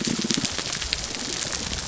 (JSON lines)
{"label": "biophony, damselfish", "recorder": "SoundTrap 300"}